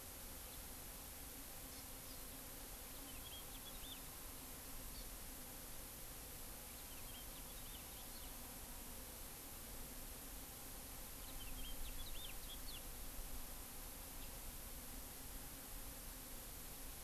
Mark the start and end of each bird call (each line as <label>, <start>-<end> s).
Hawaii Amakihi (Chlorodrepanis virens), 1.6-2.3 s
House Finch (Haemorhous mexicanus), 2.8-4.0 s
Hawaii Amakihi (Chlorodrepanis virens), 4.9-5.1 s
House Finch (Haemorhous mexicanus), 6.7-8.4 s
House Finch (Haemorhous mexicanus), 11.2-12.9 s